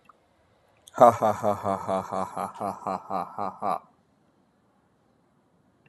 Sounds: Laughter